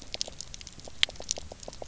{"label": "biophony, pulse", "recorder": "SoundTrap 300"}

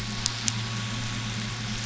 {"label": "anthrophony, boat engine", "recorder": "SoundTrap 500"}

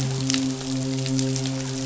{"label": "biophony, midshipman", "recorder": "SoundTrap 500"}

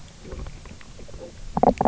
{"label": "biophony, knock croak", "recorder": "SoundTrap 300"}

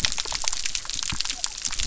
{"label": "biophony", "recorder": "SoundTrap 300"}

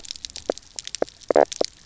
{"label": "biophony, knock croak", "recorder": "SoundTrap 300"}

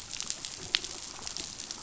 {"label": "biophony", "recorder": "SoundTrap 500"}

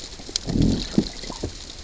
{"label": "biophony, growl", "recorder": "SoundTrap 600 or HydroMoth"}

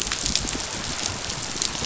{"label": "biophony, chatter", "recorder": "SoundTrap 500"}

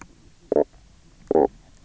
{"label": "biophony, knock croak", "recorder": "SoundTrap 300"}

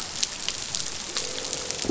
{"label": "biophony, croak", "recorder": "SoundTrap 500"}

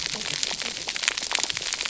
{"label": "biophony, cascading saw", "recorder": "SoundTrap 300"}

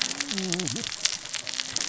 {"label": "biophony, cascading saw", "recorder": "SoundTrap 600 or HydroMoth"}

